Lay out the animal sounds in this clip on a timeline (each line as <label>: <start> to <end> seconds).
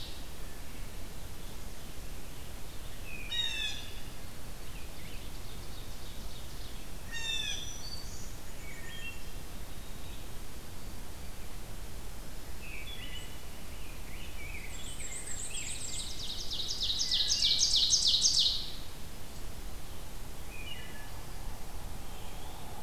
Blue Jay (Cyanocitta cristata): 3.1 to 4.0 seconds
Ovenbird (Seiurus aurocapilla): 4.7 to 6.8 seconds
Blue Jay (Cyanocitta cristata): 6.8 to 7.8 seconds
Black-throated Green Warbler (Setophaga virens): 7.1 to 8.4 seconds
Black-and-white Warbler (Mniotilta varia): 8.1 to 9.3 seconds
Wood Thrush (Hylocichla mustelina): 8.4 to 9.2 seconds
Wood Thrush (Hylocichla mustelina): 12.6 to 13.4 seconds
Rose-breasted Grosbeak (Pheucticus ludovicianus): 13.6 to 16.0 seconds
Black-and-white Warbler (Mniotilta varia): 14.6 to 16.1 seconds
Ovenbird (Seiurus aurocapilla): 15.5 to 18.7 seconds
Wood Thrush (Hylocichla mustelina): 17.1 to 17.8 seconds
Wood Thrush (Hylocichla mustelina): 20.5 to 21.2 seconds
Eastern Wood-Pewee (Contopus virens): 21.8 to 22.8 seconds